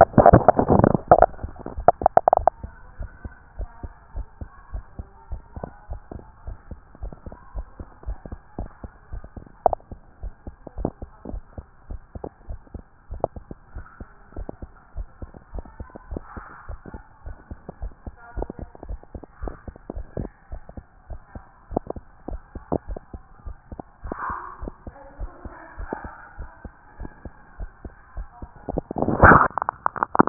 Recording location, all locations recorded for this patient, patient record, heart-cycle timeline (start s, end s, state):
tricuspid valve (TV)
aortic valve (AV)+pulmonary valve (PV)+tricuspid valve (TV)+mitral valve (MV)
#Age: Child
#Sex: Male
#Height: 161.0 cm
#Weight: 61.3 kg
#Pregnancy status: False
#Murmur: Absent
#Murmur locations: nan
#Most audible location: nan
#Systolic murmur timing: nan
#Systolic murmur shape: nan
#Systolic murmur grading: nan
#Systolic murmur pitch: nan
#Systolic murmur quality: nan
#Diastolic murmur timing: nan
#Diastolic murmur shape: nan
#Diastolic murmur grading: nan
#Diastolic murmur pitch: nan
#Diastolic murmur quality: nan
#Outcome: Abnormal
#Campaign: 2014 screening campaign
0.00	2.84	unannotated
2.84	2.98	diastole
2.98	3.10	S1
3.10	3.24	systole
3.24	3.32	S2
3.32	3.58	diastole
3.58	3.70	S1
3.70	3.82	systole
3.82	3.92	S2
3.92	4.14	diastole
4.14	4.26	S1
4.26	4.40	systole
4.40	4.48	S2
4.48	4.72	diastole
4.72	4.84	S1
4.84	4.98	systole
4.98	5.06	S2
5.06	5.30	diastole
5.30	5.42	S1
5.42	5.56	systole
5.56	5.68	S2
5.68	5.90	diastole
5.90	6.00	S1
6.00	6.14	systole
6.14	6.22	S2
6.22	6.46	diastole
6.46	6.58	S1
6.58	6.70	systole
6.70	6.80	S2
6.80	7.02	diastole
7.02	7.14	S1
7.14	7.26	systole
7.26	7.36	S2
7.36	7.54	diastole
7.54	7.66	S1
7.66	7.78	systole
7.78	7.88	S2
7.88	8.06	diastole
8.06	8.18	S1
8.18	8.30	systole
8.30	8.40	S2
8.40	8.58	diastole
8.58	8.70	S1
8.70	8.82	systole
8.82	8.92	S2
8.92	9.12	diastole
9.12	9.22	S1
9.22	9.36	systole
9.36	9.44	S2
9.44	9.66	diastole
9.66	9.78	S1
9.78	9.90	systole
9.90	10.00	S2
10.00	10.22	diastole
10.22	10.34	S1
10.34	10.46	systole
10.46	10.54	S2
10.54	10.78	diastole
10.78	10.92	S1
10.92	11.02	systole
11.02	11.10	S2
11.10	11.30	diastole
11.30	11.42	S1
11.42	11.56	systole
11.56	11.66	S2
11.66	11.90	diastole
11.90	12.00	S1
12.00	12.16	systole
12.16	12.26	S2
12.26	12.48	diastole
12.48	12.60	S1
12.60	12.74	systole
12.74	12.84	S2
12.84	13.10	diastole
13.10	13.22	S1
13.22	13.36	systole
13.36	13.46	S2
13.46	13.74	diastole
13.74	13.86	S1
13.86	14.00	systole
14.00	14.10	S2
14.10	14.36	diastole
14.36	14.48	S1
14.48	14.62	systole
14.62	14.70	S2
14.70	14.96	diastole
14.96	15.08	S1
15.08	15.20	systole
15.20	15.30	S2
15.30	15.54	diastole
15.54	15.64	S1
15.64	15.78	systole
15.78	15.88	S2
15.88	16.10	diastole
16.10	16.22	S1
16.22	16.36	systole
16.36	16.44	S2
16.44	16.68	diastole
16.68	16.80	S1
16.80	16.92	systole
16.92	17.02	S2
17.02	17.24	diastole
17.24	17.36	S1
17.36	17.50	systole
17.50	17.58	S2
17.58	17.80	diastole
17.80	17.92	S1
17.92	18.06	systole
18.06	18.14	S2
18.14	18.36	diastole
18.36	18.48	S1
18.48	18.60	systole
18.60	18.69	S2
18.69	18.88	diastole
18.88	19.00	S1
19.00	19.14	systole
19.14	19.22	S2
19.22	19.42	diastole
19.42	19.54	S1
19.54	19.66	systole
19.66	19.74	S2
19.74	19.96	diastole
19.96	20.06	S1
20.06	20.18	systole
20.18	20.30	S2
20.30	20.52	diastole
20.52	20.62	S1
20.62	20.76	systole
20.76	20.84	S2
20.84	21.08	diastole
21.08	21.20	S1
21.20	21.34	systole
21.34	21.44	S2
21.44	21.70	diastole
21.70	21.82	S1
21.82	21.94	systole
21.94	22.04	S2
22.04	22.28	diastole
22.28	22.40	S1
22.40	22.56	systole
22.56	22.64	S2
22.64	22.88	diastole
22.88	23.00	S1
23.00	23.12	systole
23.12	23.22	S2
23.22	23.44	diastole
23.44	23.56	S1
23.56	23.70	systole
23.70	23.80	S2
23.80	24.04	diastole
24.04	30.29	unannotated